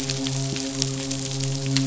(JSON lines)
{"label": "biophony, midshipman", "recorder": "SoundTrap 500"}